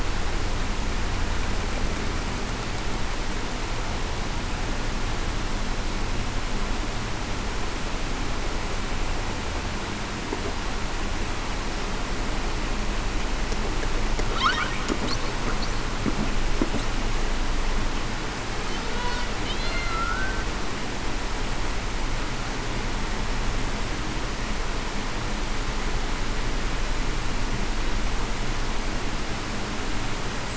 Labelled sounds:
19.6	20.4	killer whale, Bigg's (transient), 1.4 to 4.2 kHz

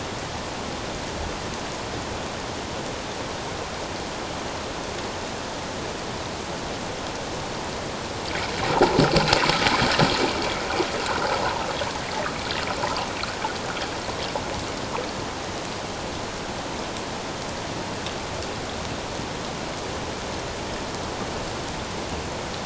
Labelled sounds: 11.1	11.3	Pacific white-sided dolphin, 1.3 to 1.7 kHz

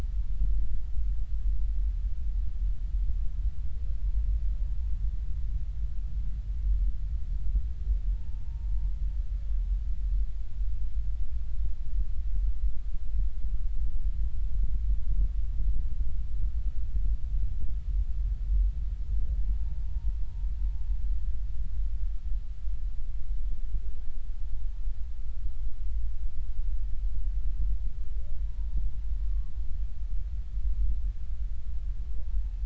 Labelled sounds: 8.2	8.8	humpback whale, 0.83 to 0.99 kHz
19.5	19.8	humpback whale, 0.86 to 0.96 kHz
28.3	28.7	humpback whale, 0.86 to 1.0 kHz

